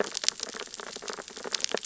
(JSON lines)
{"label": "biophony, sea urchins (Echinidae)", "recorder": "SoundTrap 600 or HydroMoth"}